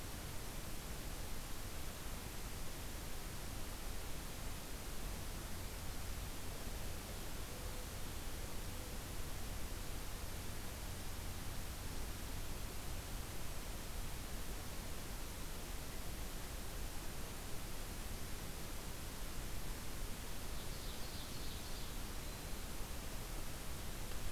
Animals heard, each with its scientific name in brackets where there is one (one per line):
Black-throated Green Warbler (Setophaga virens)
Ovenbird (Seiurus aurocapilla)